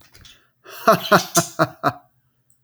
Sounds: Laughter